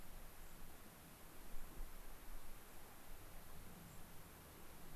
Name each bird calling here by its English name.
unidentified bird